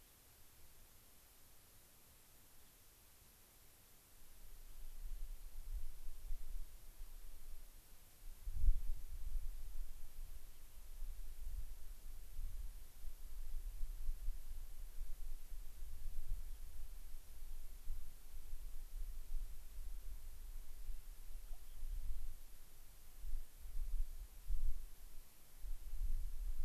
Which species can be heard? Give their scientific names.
Salpinctes obsoletus, Leucosticte tephrocotis